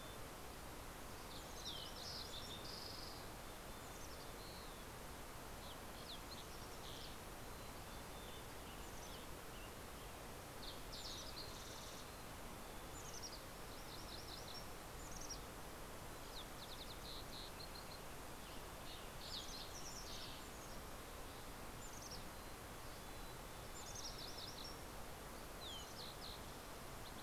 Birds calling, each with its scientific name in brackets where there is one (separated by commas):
MacGillivray's Warbler (Geothlypis tolmiei), Western Tanager (Piranga ludoviciana), Fox Sparrow (Passerella iliaca), Green-tailed Towhee (Pipilo chlorurus), Mountain Chickadee (Poecile gambeli)